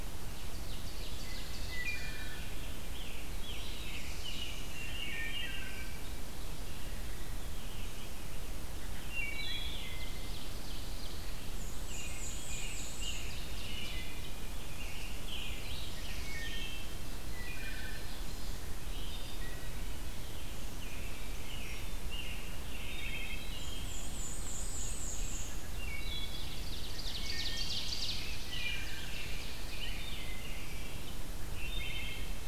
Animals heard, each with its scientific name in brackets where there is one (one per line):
Ovenbird (Seiurus aurocapilla)
Black-throated Blue Warbler (Setophaga caerulescens)
Scarlet Tanager (Piranga olivacea)
American Robin (Turdus migratorius)
Black-and-white Warbler (Mniotilta varia)
Wood Thrush (Hylocichla mustelina)
Pine Warbler (Setophaga pinus)
Rose-breasted Grosbeak (Pheucticus ludovicianus)